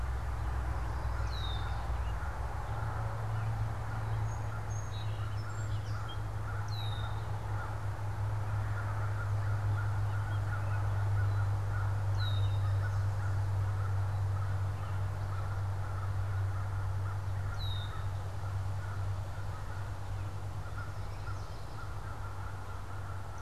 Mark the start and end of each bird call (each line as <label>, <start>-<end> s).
American Crow (Corvus brachyrhynchos), 0.2-23.4 s
Red-winged Blackbird (Agelaius phoeniceus), 1.1-1.9 s
Song Sparrow (Melospiza melodia), 4.0-6.3 s
Red-winged Blackbird (Agelaius phoeniceus), 6.5-7.3 s
Red-winged Blackbird (Agelaius phoeniceus), 12.1-12.9 s
Red-winged Blackbird (Agelaius phoeniceus), 17.4-18.3 s
Yellow Warbler (Setophaga petechia), 20.5-21.8 s